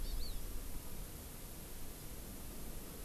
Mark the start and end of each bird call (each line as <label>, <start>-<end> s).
Hawaii Amakihi (Chlorodrepanis virens), 0.0-0.4 s